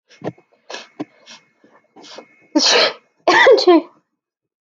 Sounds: Sneeze